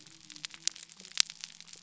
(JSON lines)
{"label": "biophony", "recorder": "SoundTrap 300"}